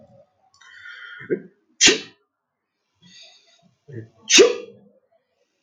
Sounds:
Sneeze